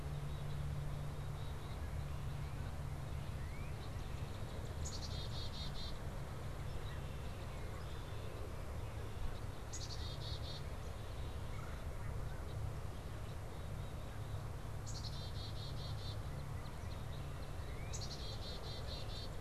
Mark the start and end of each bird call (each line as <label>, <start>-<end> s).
Black-capped Chickadee (Poecile atricapillus), 0.0-1.9 s
Northern Cardinal (Cardinalis cardinalis), 1.7-8.3 s
Black-capped Chickadee (Poecile atricapillus), 4.7-6.0 s
Red-winged Blackbird (Agelaius phoeniceus), 6.6-8.3 s
Black-capped Chickadee (Poecile atricapillus), 9.6-10.7 s
Red-bellied Woodpecker (Melanerpes carolinus), 11.4-12.0 s
Black-capped Chickadee (Poecile atricapillus), 13.5-14.5 s
Black-capped Chickadee (Poecile atricapillus), 14.8-16.2 s
Northern Cardinal (Cardinalis cardinalis), 16.1-18.2 s
Black-capped Chickadee (Poecile atricapillus), 17.8-19.3 s